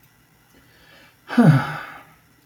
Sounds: Sigh